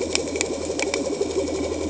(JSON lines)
{"label": "anthrophony, boat engine", "recorder": "HydroMoth"}